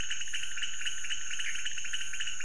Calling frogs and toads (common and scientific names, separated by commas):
pointedbelly frog (Leptodactylus podicipinus)